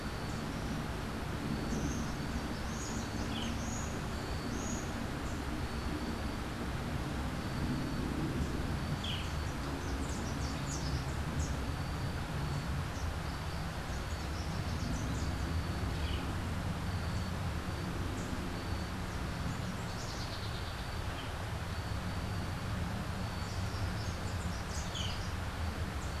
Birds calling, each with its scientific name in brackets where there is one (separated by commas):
Rufous-capped Warbler (Basileuterus rufifrons), Yellow-throated Vireo (Vireo flavifrons), Buff-throated Saltator (Saltator maximus), Boat-billed Flycatcher (Megarynchus pitangua)